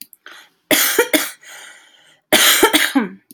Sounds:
Cough